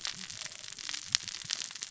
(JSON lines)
{"label": "biophony, cascading saw", "recorder": "SoundTrap 600 or HydroMoth"}